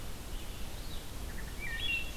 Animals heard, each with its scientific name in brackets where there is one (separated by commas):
Red-eyed Vireo (Vireo olivaceus), Wood Thrush (Hylocichla mustelina)